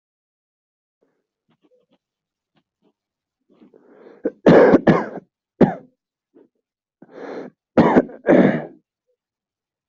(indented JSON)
{
  "expert_labels": [
    {
      "quality": "ok",
      "cough_type": "dry",
      "dyspnea": false,
      "wheezing": false,
      "stridor": false,
      "choking": false,
      "congestion": true,
      "nothing": false,
      "diagnosis": "upper respiratory tract infection",
      "severity": "mild"
    }
  ],
  "age": 22,
  "gender": "male",
  "respiratory_condition": false,
  "fever_muscle_pain": false,
  "status": "COVID-19"
}